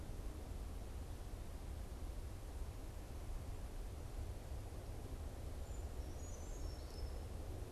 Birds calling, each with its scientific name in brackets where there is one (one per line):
Brown Creeper (Certhia americana)